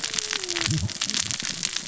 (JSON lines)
{"label": "biophony, cascading saw", "recorder": "SoundTrap 600 or HydroMoth"}